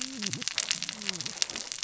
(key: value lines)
label: biophony, cascading saw
recorder: SoundTrap 600 or HydroMoth